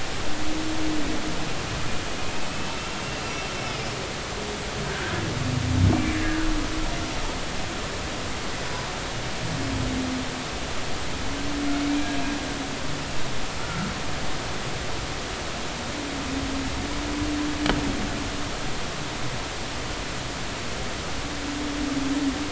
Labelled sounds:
2.5	2.8	humpback whale, 2.6 to 2.7 kHz
3.2	3.5	humpback whale, 2.6 to 2.7 kHz
5.9	6.2	humpback whale, 2.2 to 2.4 kHz
13.6	13.9	humpback whale, 1.3 to 1.5 kHz

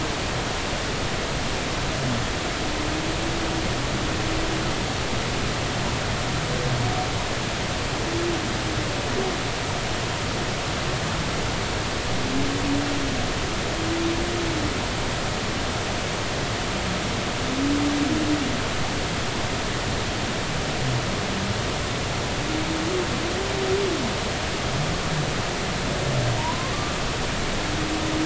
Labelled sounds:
26.4	27.0	humpback whale, 0.86 to 1.2 kHz

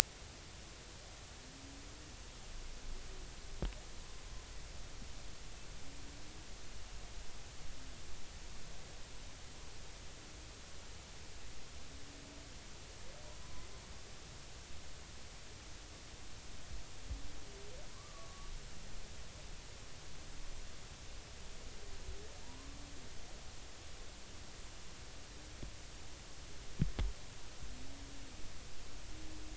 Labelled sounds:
13.4	13.7	humpback whale, 0.96 to 1.1 kHz
17.9	18.5	humpback whale, 0.96 to 1.3 kHz
22.4	22.8	humpback whale, 0.86 to 1.2 kHz

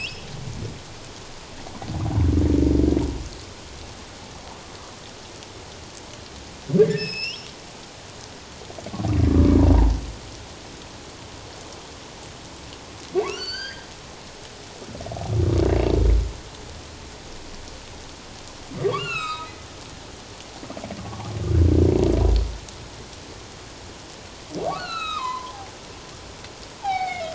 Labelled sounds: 6.8	7.5	humpback whale, 1.5 to 7.9 kHz
13.3	13.9	humpback whale, 1.3 to 4.9 kHz
18.8	19.7	humpback whale, 0.94 to 4.3 kHz
21.0	21.3	humpback whale, 0.94 to 1.2 kHz
24.6	25.6	humpback whale, 0.91 to 4.5 kHz
26.8	27.3	humpback whale, 0.78 to 4.8 kHz

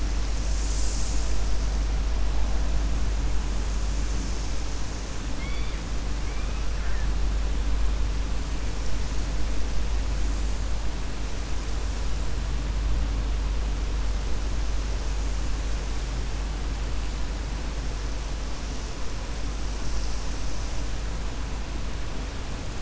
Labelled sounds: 5.3	5.8	killer whale, 1.9 to 4.7 kHz

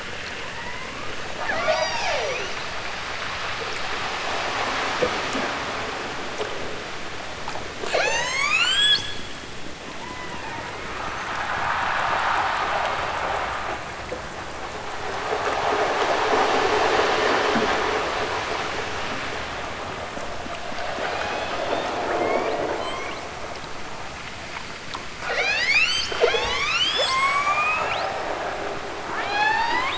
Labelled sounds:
1.3	2.7	killer whale, southern Alaska resident, 0.23 to 8.0 kHz
7.8	9.2	killer whale, southern Alaska resident, 0.18 to 8.0 kHz
9.8	10.8	killer whale, southern Alaska resident, 0.51 to 3.4 kHz
20.9	23.4	killer whale, southern Alaska resident, 1.1 to 8.0 kHz
25.2	28.2	killer whale, southern Alaska resident, 0.23 to 8.0 kHz
29.1	29.9	killer whale, southern Alaska resident, 0.41 to 7.6 kHz

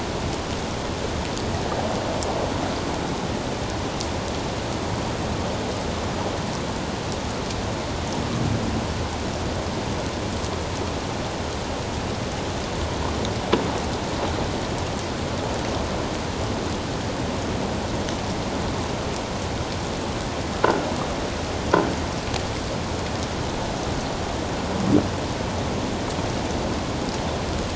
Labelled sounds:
20.6	20.9	croaking sound likely from a nearby submerged object, 1.3 to 1.6 kHz

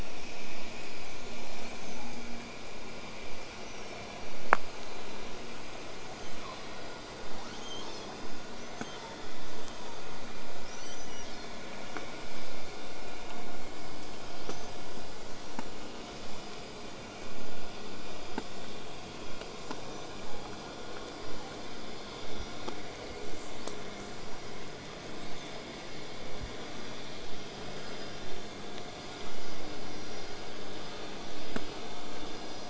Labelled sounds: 3.5	4.0	killer whale, southern resident, 5.1 to 6.1 kHz
7.3	8.1	killer whale, southern resident, L pod, call S02iii, 0.50 to 8.0 kHz
10.6	11.7	killer whale, southern resident, 2.6 to 8.0 kHz
14.4	14.7	killer whale, southern resident, whistle, 3.8 to 6.3 kHz

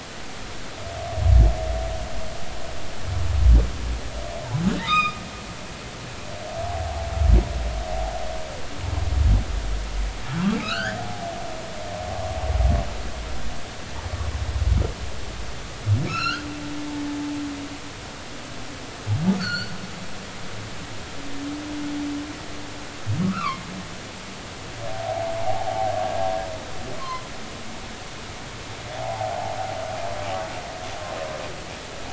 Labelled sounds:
4.8	5.2	humpback whale, 1.1 to 5.0 kHz
10.6	11.3	humpback whale, 0.80 to 4.9 kHz
16.1	16.5	humpback whale, 1.2 to 5.7 kHz
19.4	19.7	humpback whale, 1.2 to 4.7 kHz
23.2	23.6	humpback whale, 0.99 to 1.6 kHz
25.4	25.9	humpback whale, 0.80 to 1.0 kHz
27.0	27.2	humpback whale, 0.96 to 1.1 kHz
29.0	29.6	humpback whale, 0.80 to 1.0 kHz

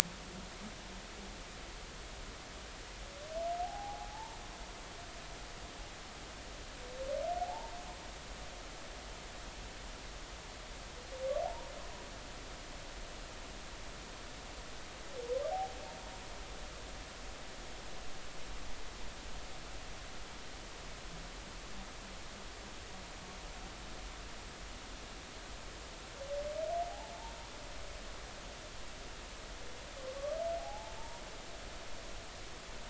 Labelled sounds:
3.6	4.4	humpback whale, 0.80 to 0.99 kHz
7.4	7.7	humpback whale, 0.80 to 0.99 kHz
11.4	11.7	humpback whale, 0.80 to 1.0 kHz
30.6	31.2	humpback whale, 0.80 to 0.99 kHz

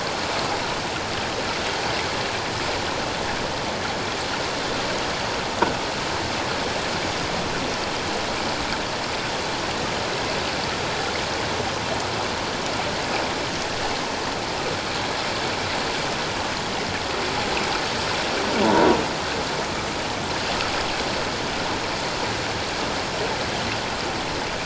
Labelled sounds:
18.6	18.9	croaking sound likely from a nearby submerged object, 0.84 to 1.0 kHz

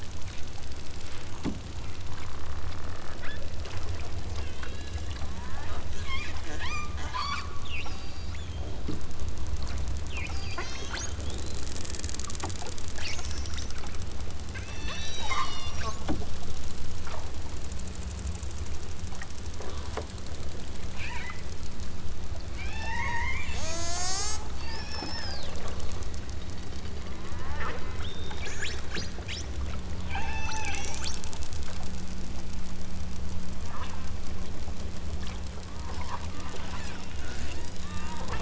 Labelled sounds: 3.2	3.5	killer whale, southern Alaska resident, 1.4 to 3.8 kHz
4.4	8.8	killer whale, southern Alaska resident, 0.41 to 8.0 kHz
10.1	11.7	killer whale, southern Alaska resident, 1.6 to 8.0 kHz
12.9	13.7	killer whale, southern Alaska resident, 1.1 to 7.4 kHz
14.5	15.9	killer whale, southern Alaska resident, 0.51 to 8.0 kHz
20.9	21.4	killer whale, southern Alaska resident, 0.60 to 5.0 kHz
22.5	25.6	killer whale, southern Alaska resident, 0.23 to 8.0 kHz
27.3	28.0	killer whale, southern Alaska resident, 0.64 to 3.6 kHz
30.0	31.2	killer whale, southern Alaska resident, 0.37 to 8.0 kHz
33.7	33.9	killer whale, southern Alaska resident, 0.60 to 5.0 kHz
37.2	37.9	killer whale, southern Alaska resident, 1.0 to 5.2 kHz

